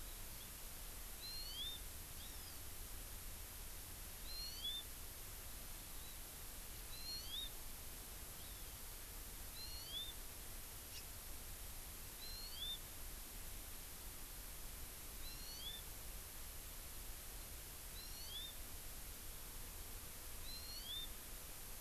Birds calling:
Hawaii Amakihi (Chlorodrepanis virens)

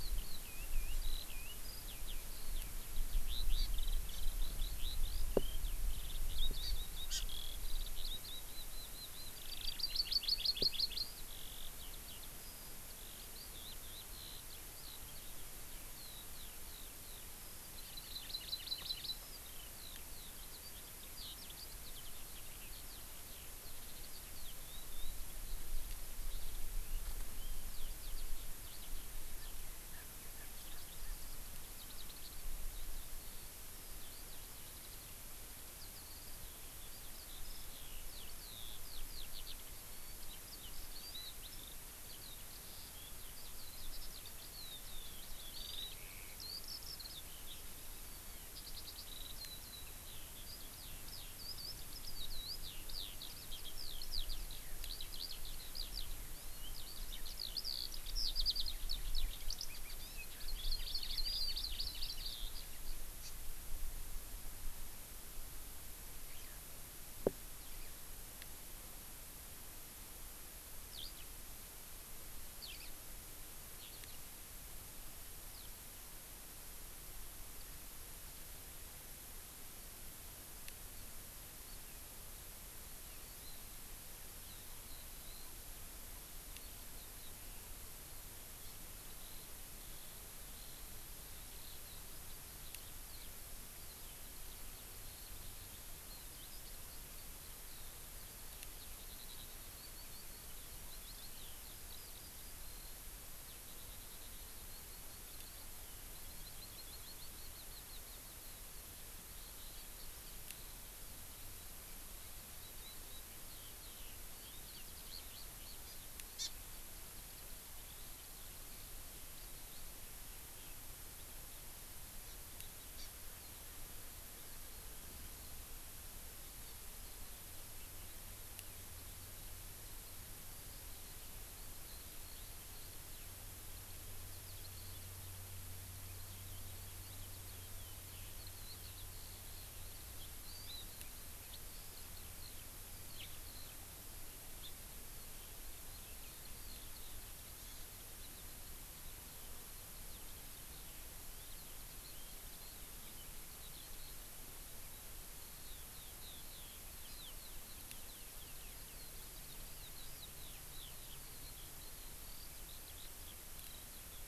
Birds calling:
Eurasian Skylark (Alauda arvensis), Hawaii Amakihi (Chlorodrepanis virens)

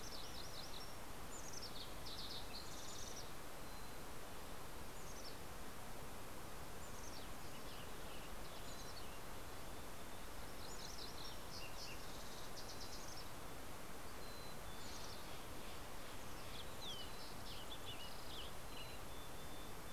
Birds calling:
MacGillivray's Warbler (Geothlypis tolmiei), Mountain Chickadee (Poecile gambeli), Fox Sparrow (Passerella iliaca), Western Tanager (Piranga ludoviciana), Steller's Jay (Cyanocitta stelleri)

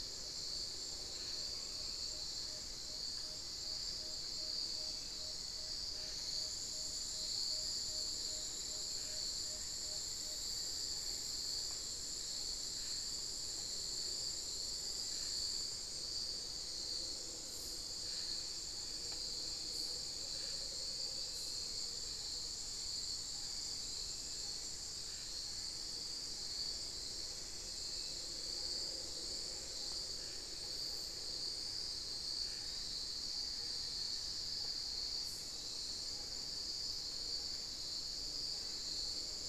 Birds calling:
Tawny-bellied Screech-Owl (Megascops watsonii), Amazonian Motmot (Momotus momota), Black-faced Antthrush (Formicarius analis)

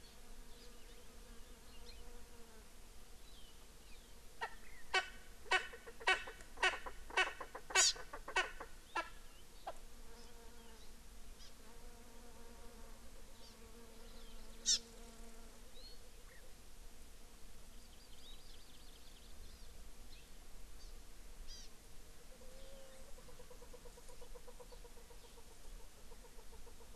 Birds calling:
Hawaii Amakihi (Chlorodrepanis virens), Chukar (Alectoris chukar)

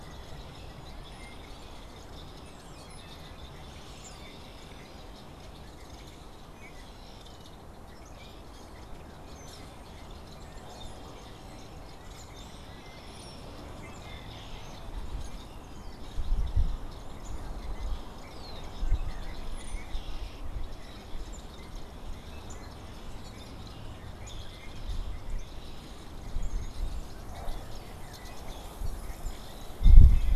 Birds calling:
unidentified bird, Brown-headed Cowbird (Molothrus ater)

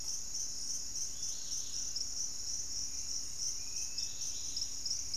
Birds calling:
Dusky-capped Greenlet (Pachysylvia hypoxantha), Dusky-capped Flycatcher (Myiarchus tuberculifer)

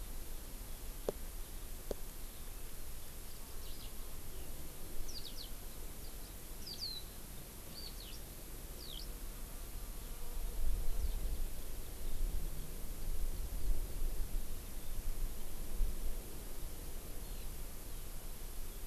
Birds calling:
Eurasian Skylark (Alauda arvensis)

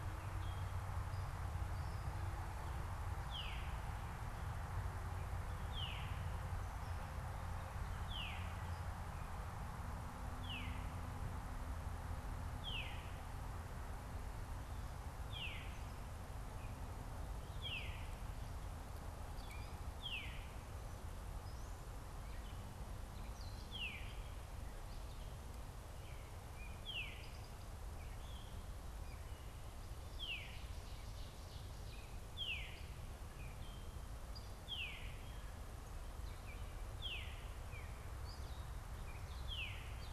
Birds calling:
Gray Catbird (Dumetella carolinensis), Ovenbird (Seiurus aurocapilla), Veery (Catharus fuscescens)

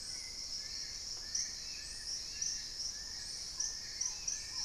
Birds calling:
Black-tailed Trogon (Trogon melanurus), Long-billed Woodcreeper (Nasica longirostris), Hauxwell's Thrush (Turdus hauxwelli), Paradise Tanager (Tangara chilensis)

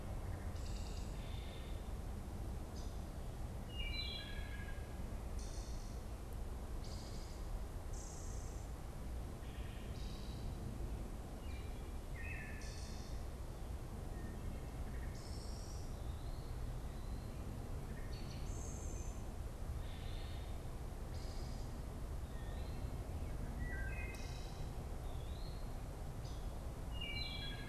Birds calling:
Eastern Wood-Pewee (Contopus virens), Wood Thrush (Hylocichla mustelina)

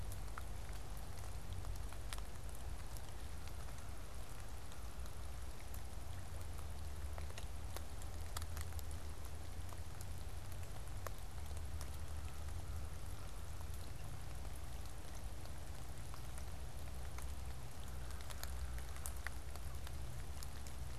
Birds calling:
American Crow (Corvus brachyrhynchos)

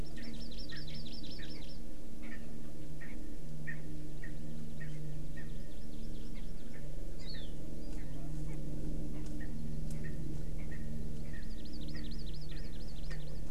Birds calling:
Erckel's Francolin (Pternistis erckelii), Warbling White-eye (Zosterops japonicus), Hawaii Amakihi (Chlorodrepanis virens)

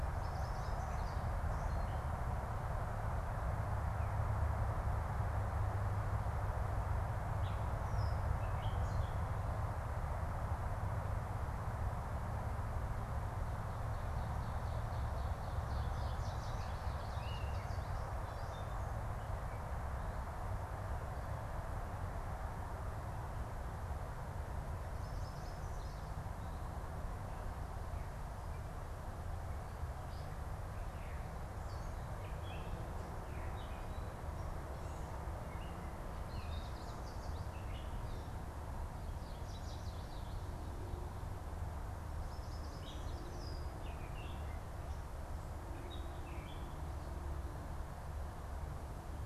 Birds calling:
Chestnut-sided Warbler (Setophaga pensylvanica), Gray Catbird (Dumetella carolinensis), Yellow Warbler (Setophaga petechia), Ovenbird (Seiurus aurocapilla)

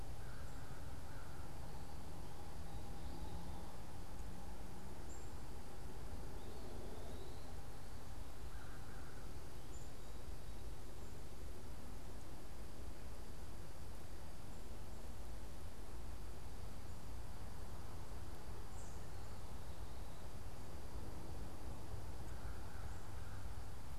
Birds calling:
unidentified bird, American Crow (Corvus brachyrhynchos)

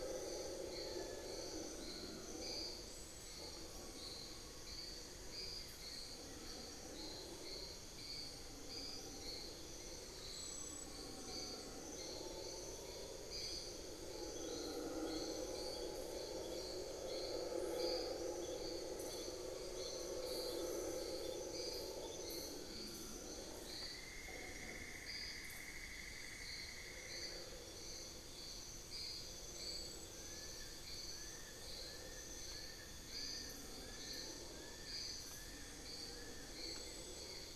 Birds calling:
Buff-throated Woodcreeper (Xiphorhynchus guttatus), unidentified bird, Amazonian Pygmy-Owl (Glaucidium hardyi), Fasciated Antshrike (Cymbilaimus lineatus), Cinnamon-throated Woodcreeper (Dendrexetastes rufigula)

